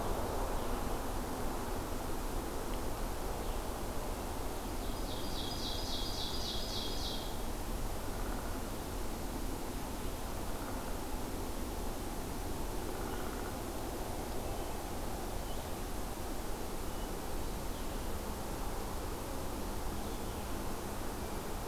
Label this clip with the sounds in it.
Ovenbird, Hermit Thrush